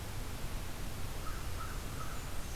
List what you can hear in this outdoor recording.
American Crow, Blackburnian Warbler